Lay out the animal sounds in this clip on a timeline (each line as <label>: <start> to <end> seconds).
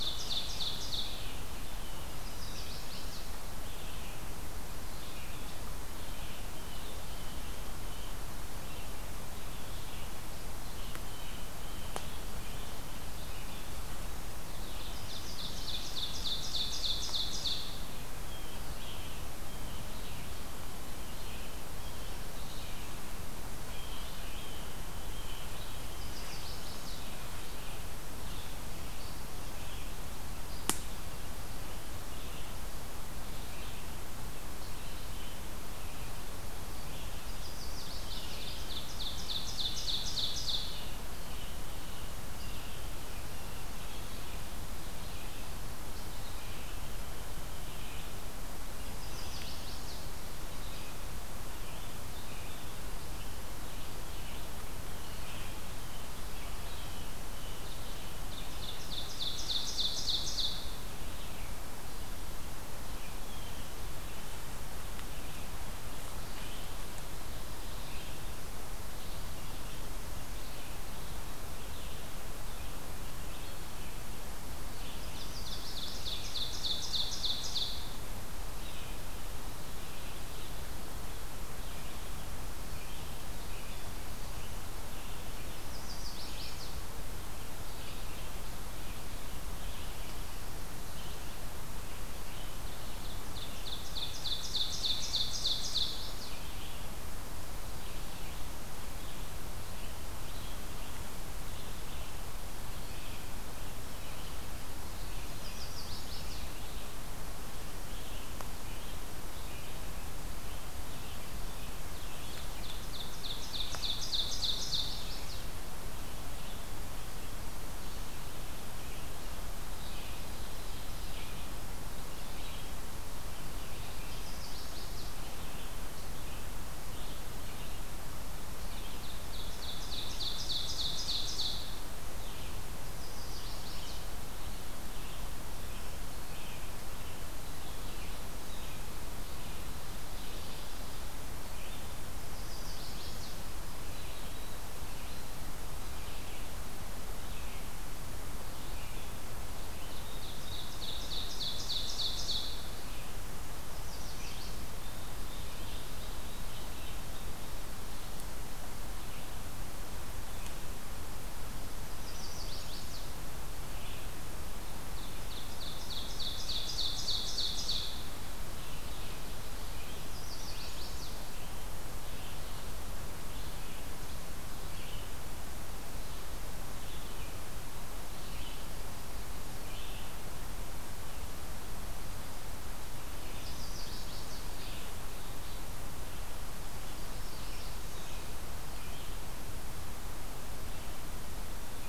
Ovenbird (Seiurus aurocapilla): 0.0 to 1.2 seconds
Red-eyed Vireo (Vireo olivaceus): 0.0 to 14.8 seconds
Chestnut-sided Warbler (Setophaga pensylvanica): 2.2 to 3.3 seconds
Ovenbird (Seiurus aurocapilla): 14.9 to 17.8 seconds
Red-eyed Vireo (Vireo olivaceus): 18.1 to 58.4 seconds
Blue Jay (Cyanocitta cristata): 23.7 to 25.7 seconds
Chestnut-sided Warbler (Setophaga pensylvanica): 25.8 to 27.1 seconds
Chestnut-sided Warbler (Setophaga pensylvanica): 37.1 to 38.6 seconds
Ovenbird (Seiurus aurocapilla): 38.6 to 40.9 seconds
Chestnut-sided Warbler (Setophaga pensylvanica): 48.9 to 50.1 seconds
Ovenbird (Seiurus aurocapilla): 58.2 to 60.7 seconds
Red-eyed Vireo (Vireo olivaceus): 62.7 to 65.6 seconds
Red-eyed Vireo (Vireo olivaceus): 65.9 to 128.4 seconds
Chestnut-sided Warbler (Setophaga pensylvanica): 74.8 to 76.0 seconds
Ovenbird (Seiurus aurocapilla): 75.0 to 78.1 seconds
Chestnut-sided Warbler (Setophaga pensylvanica): 85.6 to 86.8 seconds
Ovenbird (Seiurus aurocapilla): 93.2 to 95.9 seconds
Chestnut-sided Warbler (Setophaga pensylvanica): 95.3 to 96.4 seconds
Chestnut-sided Warbler (Setophaga pensylvanica): 105.2 to 106.5 seconds
Ovenbird (Seiurus aurocapilla): 112.5 to 115.1 seconds
Chestnut-sided Warbler (Setophaga pensylvanica): 114.4 to 115.5 seconds
Chestnut-sided Warbler (Setophaga pensylvanica): 124.1 to 125.1 seconds
Ovenbird (Seiurus aurocapilla): 129.0 to 131.7 seconds
Red-eyed Vireo (Vireo olivaceus): 132.1 to 150.1 seconds
Chestnut-sided Warbler (Setophaga pensylvanica): 132.9 to 134.1 seconds
Chestnut-sided Warbler (Setophaga pensylvanica): 142.3 to 143.4 seconds
Ovenbird (Seiurus aurocapilla): 150.0 to 152.9 seconds
Chestnut-sided Warbler (Setophaga pensylvanica): 153.8 to 154.6 seconds
Red-eyed Vireo (Vireo olivaceus): 154.0 to 170.9 seconds
Ovenbird (Seiurus aurocapilla): 155.2 to 157.5 seconds
Chestnut-sided Warbler (Setophaga pensylvanica): 162.0 to 163.2 seconds
Ovenbird (Seiurus aurocapilla): 165.0 to 168.1 seconds
Chestnut-sided Warbler (Setophaga pensylvanica): 169.9 to 171.2 seconds
Red-eyed Vireo (Vireo olivaceus): 171.8 to 180.3 seconds
Red-eyed Vireo (Vireo olivaceus): 182.9 to 191.0 seconds
Chestnut-sided Warbler (Setophaga pensylvanica): 183.3 to 184.5 seconds
Northern Parula (Setophaga americana): 186.9 to 188.2 seconds